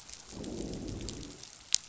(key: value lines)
label: biophony, growl
recorder: SoundTrap 500